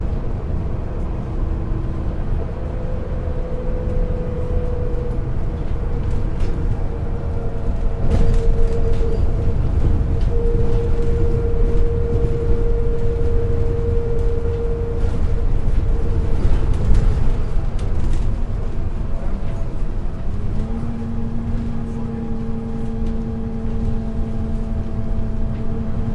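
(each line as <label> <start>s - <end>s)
A car engine hums steadily. 0.0s - 8.0s
The sound of a car's undercarriage moving. 8.1s - 19.1s
A car engine hums steadily. 19.2s - 26.1s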